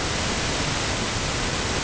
{"label": "ambient", "recorder": "HydroMoth"}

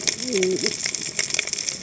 {"label": "biophony, cascading saw", "recorder": "HydroMoth"}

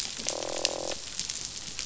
{"label": "biophony, croak", "recorder": "SoundTrap 500"}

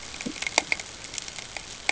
{"label": "ambient", "recorder": "HydroMoth"}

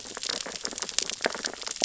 {"label": "biophony, sea urchins (Echinidae)", "recorder": "SoundTrap 600 or HydroMoth"}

